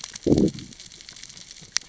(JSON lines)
{"label": "biophony, growl", "recorder": "SoundTrap 600 or HydroMoth"}